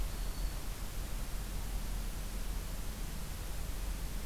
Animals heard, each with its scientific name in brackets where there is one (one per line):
Black-throated Green Warbler (Setophaga virens)